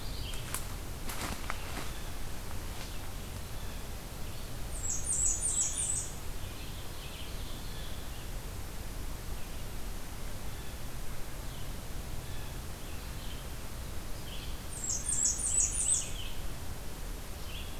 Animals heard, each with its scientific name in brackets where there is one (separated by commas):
Blackburnian Warbler (Setophaga fusca), Red-eyed Vireo (Vireo olivaceus), Ovenbird (Seiurus aurocapilla)